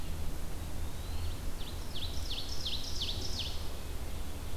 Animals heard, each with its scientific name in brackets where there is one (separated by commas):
Ovenbird (Seiurus aurocapilla), Eastern Wood-Pewee (Contopus virens)